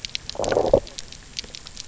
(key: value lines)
label: biophony, low growl
recorder: SoundTrap 300